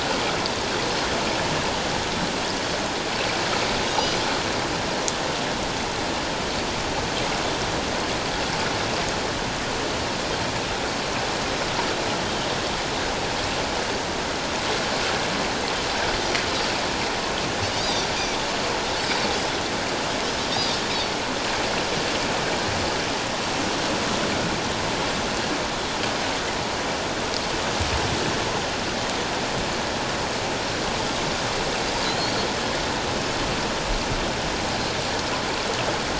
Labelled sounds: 3.9	4.1	Pacific white-sided dolphin, 2.8 to 3.0 kHz
32.0	32.5	Pacific white-sided dolphin, 3.9 to 4.7 kHz

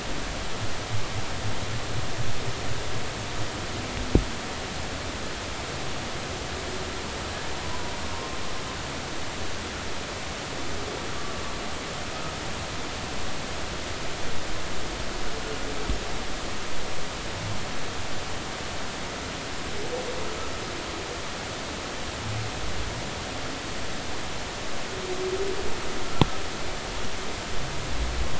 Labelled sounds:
7.6	8.4	humpback whale, 0.90 to 1.1 kHz

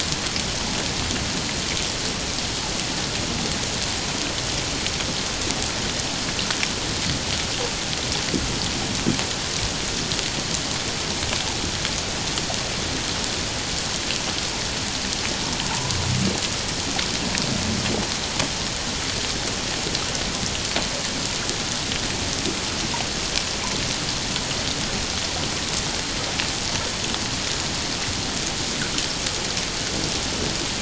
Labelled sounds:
15.7	16.0	humpback whale, 0.84 to 1.1 kHz

